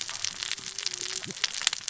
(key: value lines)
label: biophony, cascading saw
recorder: SoundTrap 600 or HydroMoth